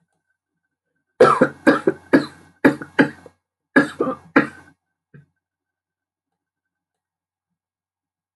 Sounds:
Cough